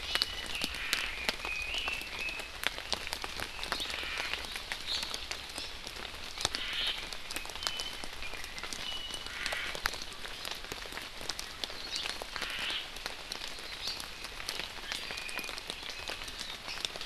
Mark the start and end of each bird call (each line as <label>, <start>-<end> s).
Iiwi (Drepanis coccinea), 0.0-0.5 s
Omao (Myadestes obscurus), 0.7-1.1 s
Red-billed Leiothrix (Leiothrix lutea), 1.1-2.5 s
Omao (Myadestes obscurus), 3.9-4.3 s
Omao (Myadestes obscurus), 6.5-6.9 s